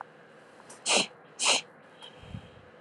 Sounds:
Sniff